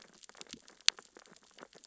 {"label": "biophony, sea urchins (Echinidae)", "recorder": "SoundTrap 600 or HydroMoth"}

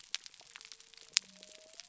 {"label": "biophony", "recorder": "SoundTrap 300"}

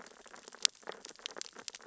{"label": "biophony, sea urchins (Echinidae)", "recorder": "SoundTrap 600 or HydroMoth"}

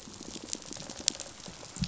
{"label": "biophony, pulse", "recorder": "SoundTrap 500"}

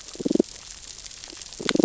{"label": "biophony, damselfish", "recorder": "SoundTrap 600 or HydroMoth"}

